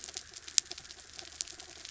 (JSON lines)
{"label": "anthrophony, mechanical", "recorder": "SoundTrap 300"}